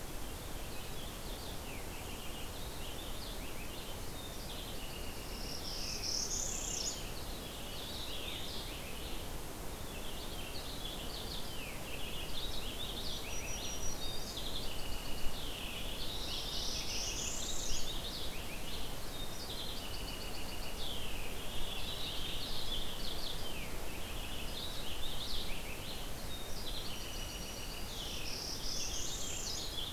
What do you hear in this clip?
Purple Finch, Northern Parula, Black-throated Green Warbler